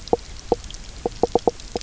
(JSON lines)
{"label": "biophony, knock croak", "recorder": "SoundTrap 300"}